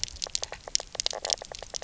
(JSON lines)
{"label": "biophony, knock croak", "recorder": "SoundTrap 300"}